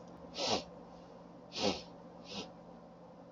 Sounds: Sniff